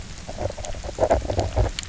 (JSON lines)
{"label": "biophony, knock croak", "recorder": "SoundTrap 300"}